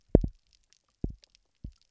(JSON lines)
{"label": "biophony, double pulse", "recorder": "SoundTrap 300"}